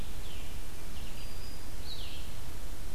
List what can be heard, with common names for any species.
Blue-headed Vireo, Red-eyed Vireo, Black-throated Green Warbler